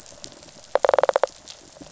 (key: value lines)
label: biophony, rattle response
recorder: SoundTrap 500